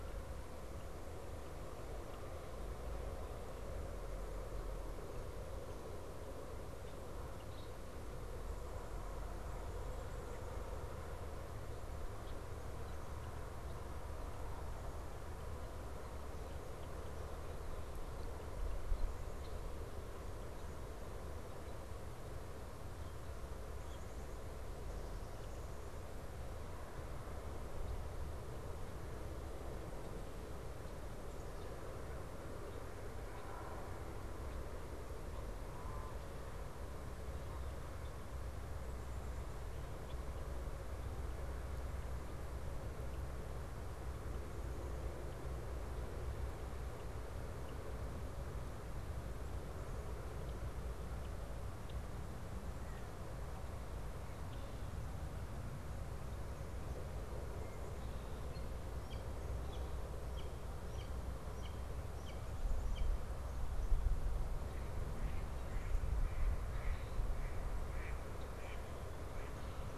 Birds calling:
Blue Jay (Cyanocitta cristata), Mallard (Anas platyrhynchos)

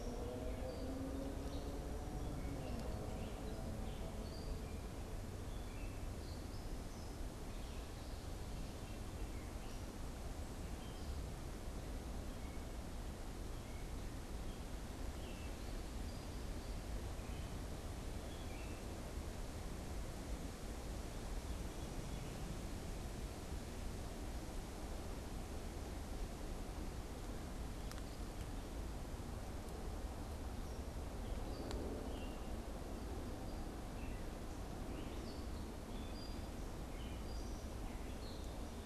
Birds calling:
Gray Catbird (Dumetella carolinensis)

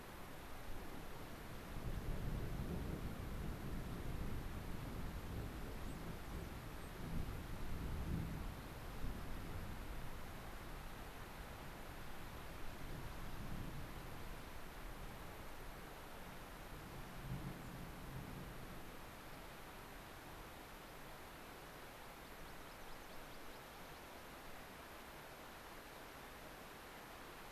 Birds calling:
unidentified bird, American Pipit (Anthus rubescens)

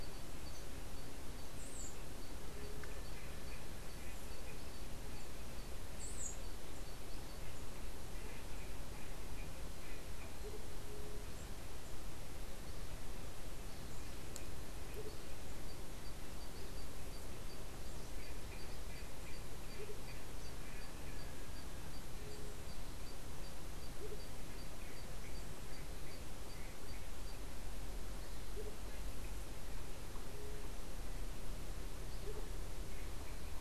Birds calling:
White-tipped Dove (Leptotila verreauxi), Andean Motmot (Momotus aequatorialis)

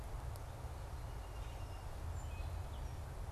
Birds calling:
Song Sparrow (Melospiza melodia)

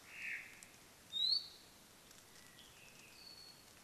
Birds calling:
Iiwi (Drepanis coccinea), Omao (Myadestes obscurus), Apapane (Himatione sanguinea)

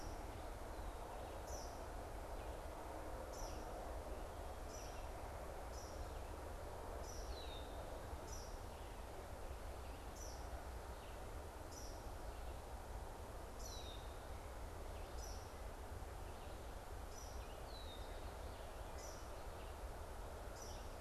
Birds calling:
Red-winged Blackbird (Agelaius phoeniceus), Eastern Kingbird (Tyrannus tyrannus), Red-eyed Vireo (Vireo olivaceus)

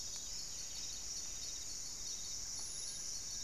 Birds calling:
Buff-breasted Wren (Cantorchilus leucotis), Long-billed Woodcreeper (Nasica longirostris)

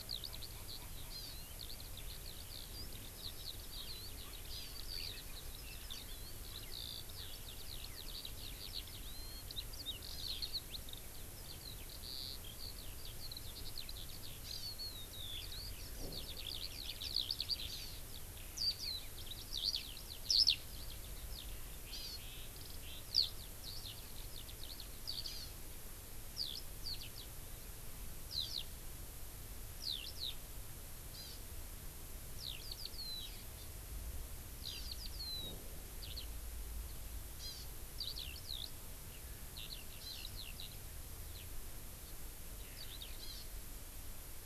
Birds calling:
Eurasian Skylark (Alauda arvensis), Hawaii Amakihi (Chlorodrepanis virens)

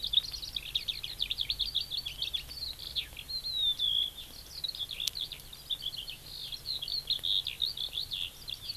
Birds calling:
Eurasian Skylark (Alauda arvensis)

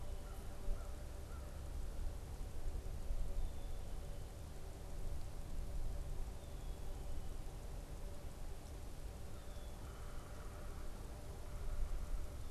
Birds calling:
Black-capped Chickadee (Poecile atricapillus), unidentified bird, American Crow (Corvus brachyrhynchos)

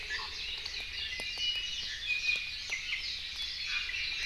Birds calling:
Warbling White-eye (Zosterops japonicus), Iiwi (Drepanis coccinea)

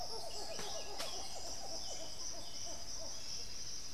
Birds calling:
Buff-throated Saltator (Saltator maximus)

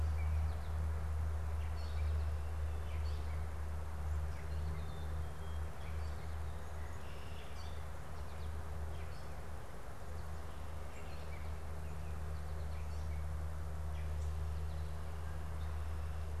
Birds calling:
Gray Catbird (Dumetella carolinensis), Black-capped Chickadee (Poecile atricapillus)

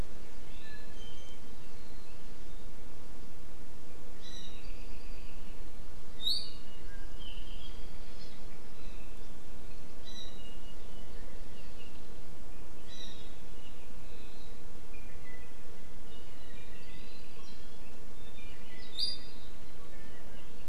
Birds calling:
Iiwi (Drepanis coccinea)

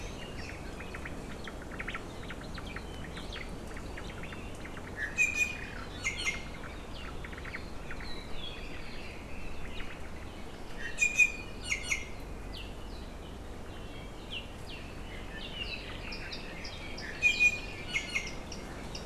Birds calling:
Iiwi (Drepanis coccinea), Hawaii Amakihi (Chlorodrepanis virens), Omao (Myadestes obscurus), Apapane (Himatione sanguinea)

